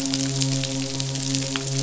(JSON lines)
{"label": "biophony, midshipman", "recorder": "SoundTrap 500"}